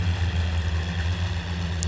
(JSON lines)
{"label": "anthrophony, boat engine", "recorder": "SoundTrap 500"}